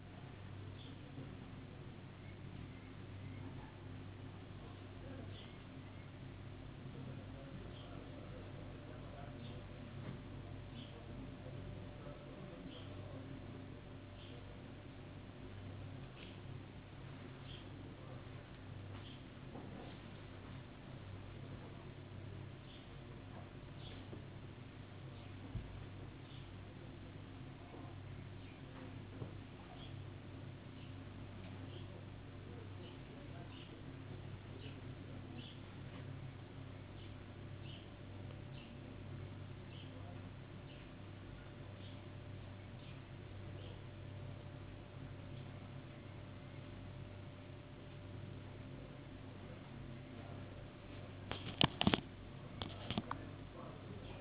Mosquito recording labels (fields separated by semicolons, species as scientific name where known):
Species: no mosquito; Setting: insect culture